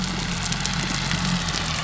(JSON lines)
{"label": "biophony", "recorder": "SoundTrap 300"}